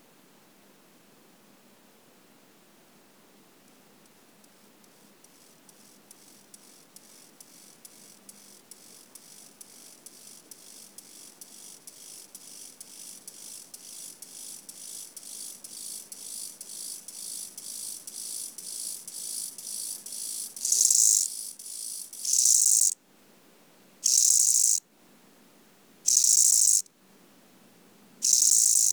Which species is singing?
Chorthippus eisentrauti